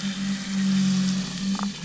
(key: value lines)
label: biophony, damselfish
recorder: SoundTrap 500

label: anthrophony, boat engine
recorder: SoundTrap 500